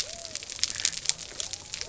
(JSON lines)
{"label": "biophony", "recorder": "SoundTrap 300"}